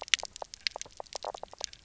{"label": "biophony, knock croak", "recorder": "SoundTrap 300"}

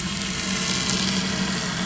{"label": "anthrophony, boat engine", "recorder": "SoundTrap 500"}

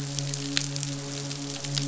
{"label": "biophony, midshipman", "recorder": "SoundTrap 500"}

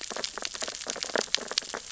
{"label": "biophony, sea urchins (Echinidae)", "recorder": "SoundTrap 600 or HydroMoth"}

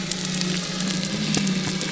{"label": "biophony", "recorder": "SoundTrap 300"}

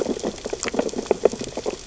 {"label": "biophony, sea urchins (Echinidae)", "recorder": "SoundTrap 600 or HydroMoth"}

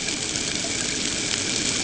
{"label": "ambient", "recorder": "HydroMoth"}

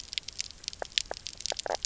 {"label": "biophony, knock croak", "recorder": "SoundTrap 300"}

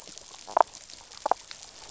{"label": "biophony, damselfish", "recorder": "SoundTrap 500"}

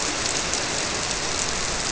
{"label": "biophony", "recorder": "SoundTrap 300"}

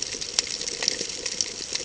{"label": "ambient", "recorder": "HydroMoth"}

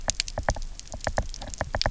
{"label": "biophony, knock", "recorder": "SoundTrap 300"}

